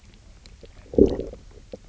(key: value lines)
label: biophony, low growl
recorder: SoundTrap 300